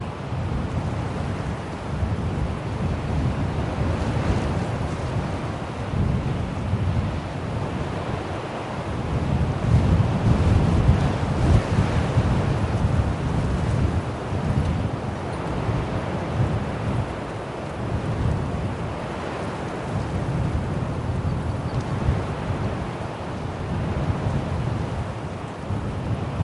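A light wind is blowing. 0.0 - 8.8
A strong gust of wind. 8.9 - 17.0
A light wind is blowing. 17.1 - 26.4

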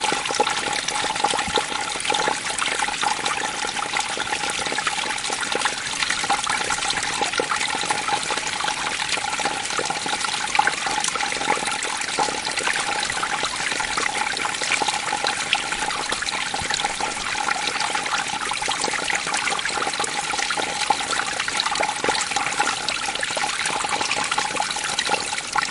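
A water stream flows irregularly with soft staccato sounds. 0.0 - 25.7

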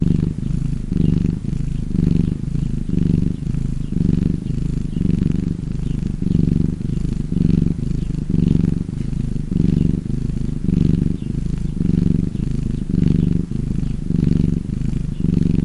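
A cat purrs loudly and quickly indoors. 0.0 - 15.6

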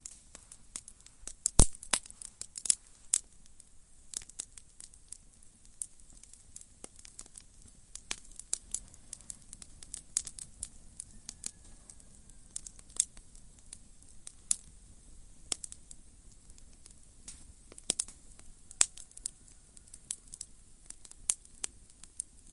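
Firewood crackling in an intense fire. 0.1 - 3.2
Fire burning mildly. 3.3 - 4.0
The crackling of logs in a fire. 3.9 - 15.7
A campfire burns steadily. 15.9 - 17.8
Fire crackling. 17.7 - 22.5

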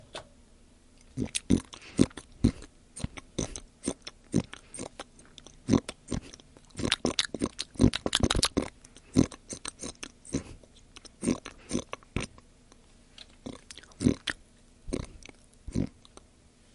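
A pig is grunting and snuffling while eating. 0.0 - 16.7

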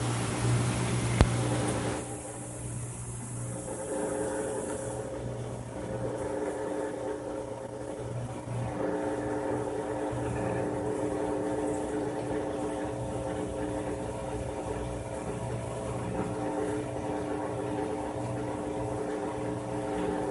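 Continuous mechanical whirring and humming. 0.1 - 20.1

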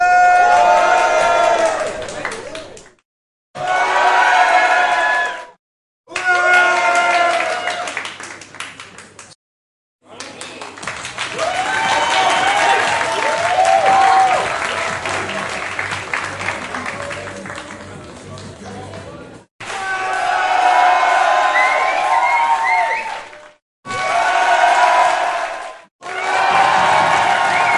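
A large group of people shout and applaud. 0.0 - 3.0
A large group of people are shouting and clapping. 3.5 - 5.5
People shouting and clapping. 6.0 - 9.4
People shouting and clapping. 10.0 - 18.6
Music playing. 11.1 - 19.5
Many people are talking. 17.9 - 19.4
People shouting, clapping, and whistling. 19.5 - 23.6
People shouting and clapping. 23.8 - 27.8
A series of percussion sounds. 26.0 - 27.8

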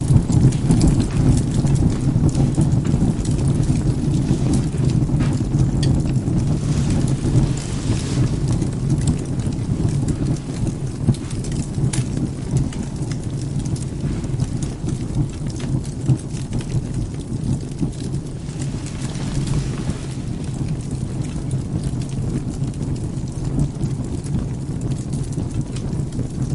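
A fire crackles loudly indoors. 0.0 - 26.5
Sounds of objects moving in the background. 0.5 - 20.9
Objects clink in the distance. 5.8 - 6.6

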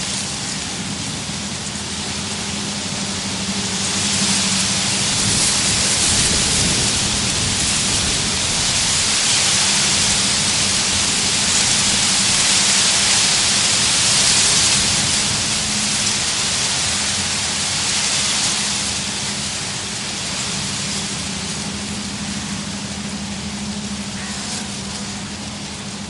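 Grand reed-grass rustling in the wind outdoors, gradually increasing in volume, sustaining loudness, then fading away. 0.0 - 26.1

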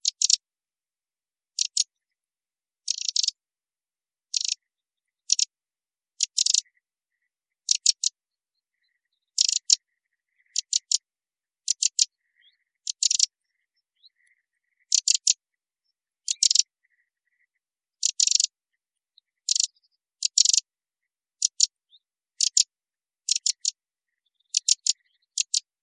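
A brief and clear bird chirp nearby. 0.0 - 0.4
A brief and clear bird chirp nearby. 1.5 - 1.9
A brief and clear bird chirp nearby. 2.8 - 3.4
A bird chirps continuously and clearly nearby with unique rhythms and regular pauses. 4.3 - 25.7

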